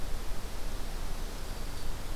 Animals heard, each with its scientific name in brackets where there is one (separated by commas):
Black-throated Green Warbler (Setophaga virens)